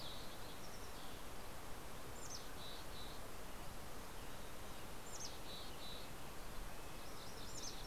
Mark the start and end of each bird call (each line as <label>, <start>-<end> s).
Mountain Chickadee (Poecile gambeli), 0.0-7.9 s
Green-tailed Towhee (Pipilo chlorurus), 0.1-2.1 s
Red-breasted Nuthatch (Sitta canadensis), 5.5-7.7 s